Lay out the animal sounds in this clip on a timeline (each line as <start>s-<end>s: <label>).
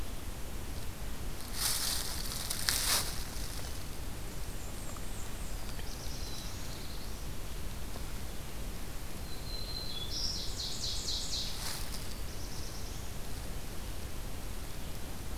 4.4s-5.8s: Blackburnian Warbler (Setophaga fusca)
5.4s-7.5s: Black-throated Blue Warbler (Setophaga caerulescens)
9.0s-10.5s: Black-throated Green Warbler (Setophaga virens)
9.8s-11.7s: Ovenbird (Seiurus aurocapilla)
11.8s-13.3s: Black-throated Blue Warbler (Setophaga caerulescens)